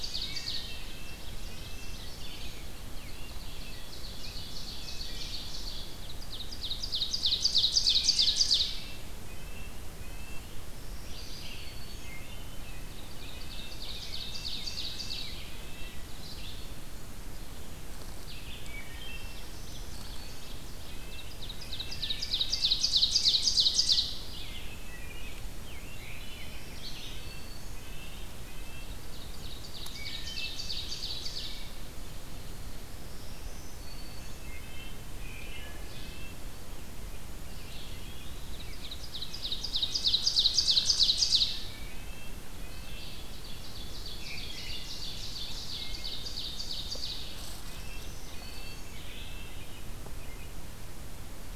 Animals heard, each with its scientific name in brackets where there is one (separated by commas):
Eastern Wood-Pewee (Contopus virens), American Robin (Turdus migratorius), Red-breasted Nuthatch (Sitta canadensis), Wood Thrush (Hylocichla mustelina), Black-throated Green Warbler (Setophaga virens), Ovenbird (Seiurus aurocapilla), Red-eyed Vireo (Vireo olivaceus)